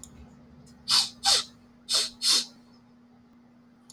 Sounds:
Sniff